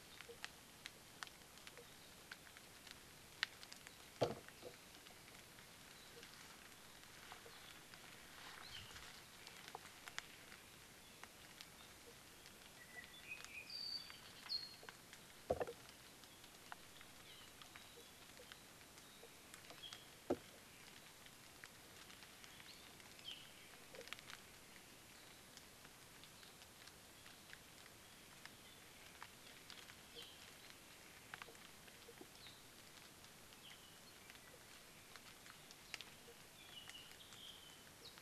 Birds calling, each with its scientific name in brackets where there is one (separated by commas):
Apapane (Himatione sanguinea)